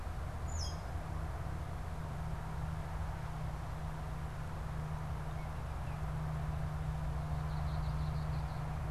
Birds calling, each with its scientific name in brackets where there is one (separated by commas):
Red-winged Blackbird (Agelaius phoeniceus), Tree Swallow (Tachycineta bicolor)